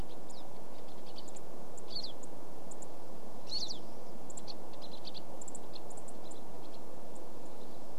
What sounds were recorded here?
Pine Siskin song, Pine Siskin call, unidentified bird chip note